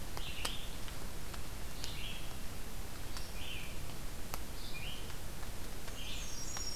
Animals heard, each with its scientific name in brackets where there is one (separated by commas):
Black-throated Green Warbler (Setophaga virens), Red-eyed Vireo (Vireo olivaceus), Blackburnian Warbler (Setophaga fusca)